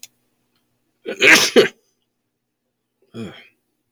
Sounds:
Sneeze